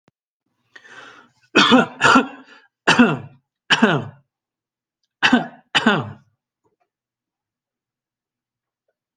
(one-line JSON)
{"expert_labels": [{"quality": "good", "cough_type": "unknown", "dyspnea": false, "wheezing": false, "stridor": false, "choking": false, "congestion": false, "nothing": true, "diagnosis": "upper respiratory tract infection", "severity": "mild"}], "age": 45, "gender": "male", "respiratory_condition": false, "fever_muscle_pain": false, "status": "symptomatic"}